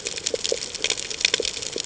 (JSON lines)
{"label": "ambient", "recorder": "HydroMoth"}